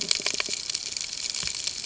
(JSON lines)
{"label": "ambient", "recorder": "HydroMoth"}